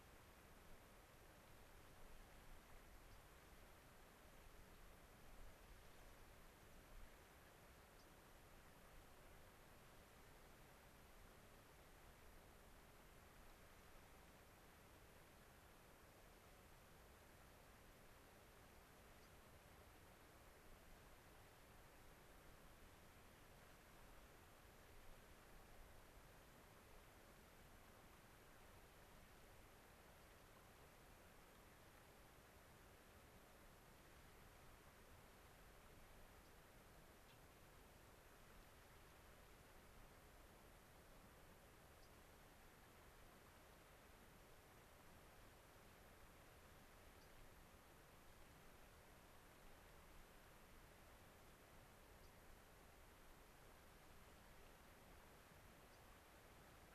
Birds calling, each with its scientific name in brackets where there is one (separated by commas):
Gray-crowned Rosy-Finch (Leucosticte tephrocotis), American Pipit (Anthus rubescens)